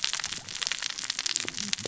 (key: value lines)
label: biophony, cascading saw
recorder: SoundTrap 600 or HydroMoth